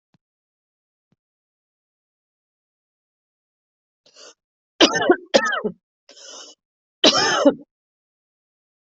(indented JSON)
{
  "expert_labels": [
    {
      "quality": "ok",
      "cough_type": "dry",
      "dyspnea": false,
      "wheezing": false,
      "stridor": false,
      "choking": false,
      "congestion": false,
      "nothing": true,
      "diagnosis": "lower respiratory tract infection",
      "severity": "mild"
    }
  ],
  "age": 50,
  "gender": "female",
  "respiratory_condition": false,
  "fever_muscle_pain": false,
  "status": "healthy"
}